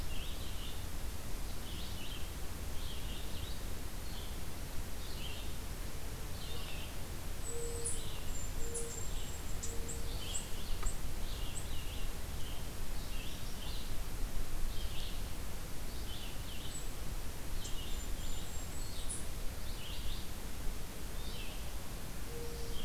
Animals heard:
Mourning Dove (Zenaida macroura)
Red-eyed Vireo (Vireo olivaceus)
Golden-crowned Kinglet (Regulus satrapa)

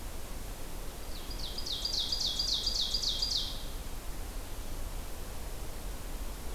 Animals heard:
Ovenbird (Seiurus aurocapilla)

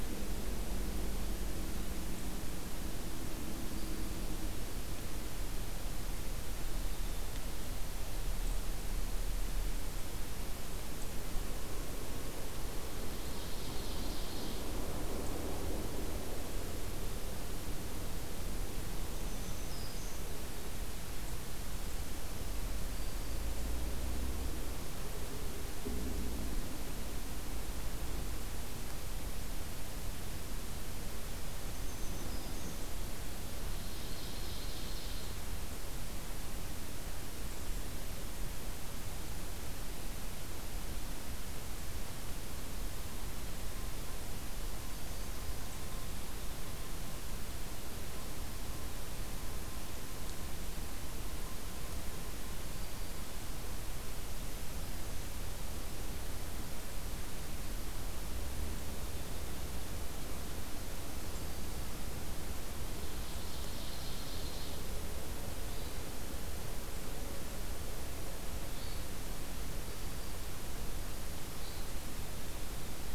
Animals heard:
Black-throated Green Warbler (Setophaga virens)
Hermit Thrush (Catharus guttatus)
Ovenbird (Seiurus aurocapilla)

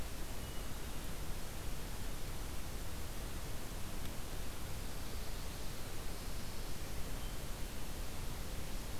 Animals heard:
Chestnut-sided Warbler (Setophaga pensylvanica)
Hermit Thrush (Catharus guttatus)

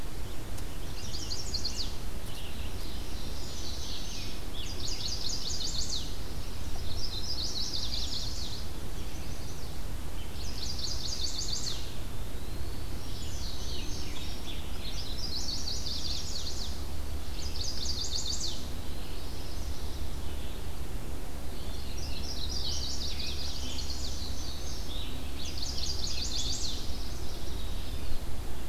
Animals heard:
Chestnut-sided Warbler (Setophaga pensylvanica)
Ovenbird (Seiurus aurocapilla)
Eastern Wood-Pewee (Contopus virens)
Indigo Bunting (Passerina cyanea)
Scarlet Tanager (Piranga olivacea)

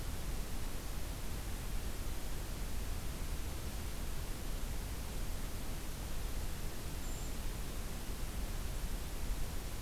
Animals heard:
Brown Creeper (Certhia americana)

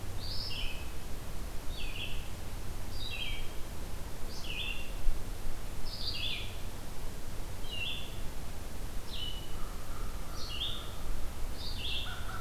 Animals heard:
American Crow (Corvus brachyrhynchos)
Red-eyed Vireo (Vireo olivaceus)

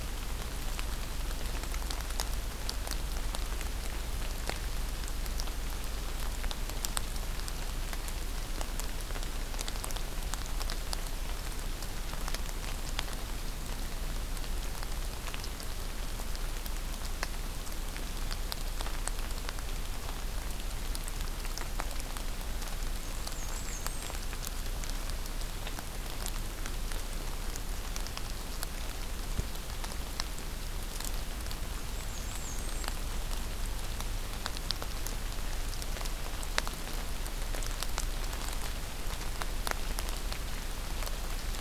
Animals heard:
Black-and-white Warbler (Mniotilta varia)

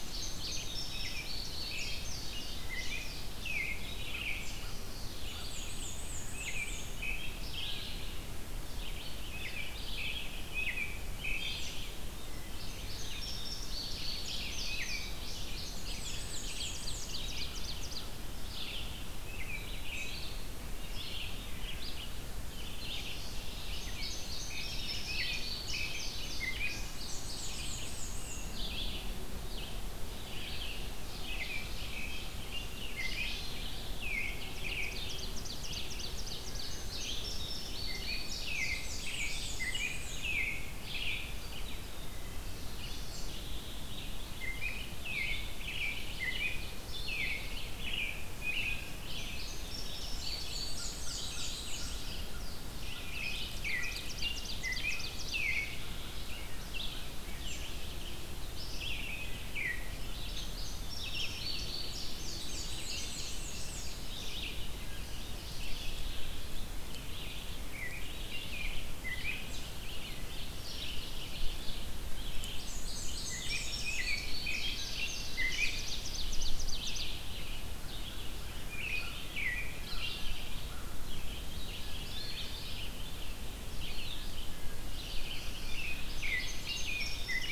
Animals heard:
Wood Thrush (Hylocichla mustelina)
Black-and-white Warbler (Mniotilta varia)
Ovenbird (Seiurus aurocapilla)
Indigo Bunting (Passerina cyanea)
Red-eyed Vireo (Vireo olivaceus)
American Robin (Turdus migratorius)
Mourning Warbler (Geothlypis philadelphia)

